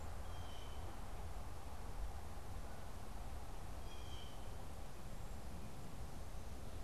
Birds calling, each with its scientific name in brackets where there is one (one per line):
Blue Jay (Cyanocitta cristata)